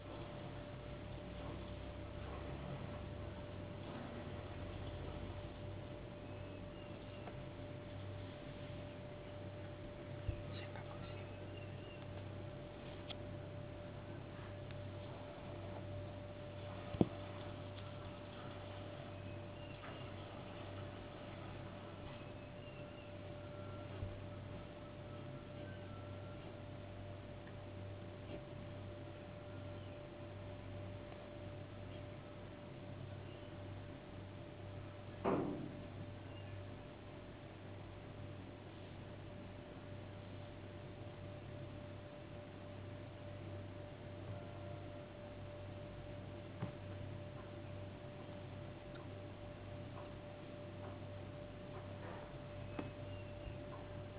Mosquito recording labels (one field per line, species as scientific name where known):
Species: no mosquito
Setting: insect culture